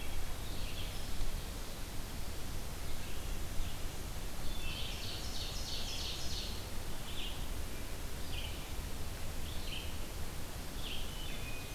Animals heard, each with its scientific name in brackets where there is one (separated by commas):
Hairy Woodpecker (Dryobates villosus), Wood Thrush (Hylocichla mustelina), Red-eyed Vireo (Vireo olivaceus), Ovenbird (Seiurus aurocapilla)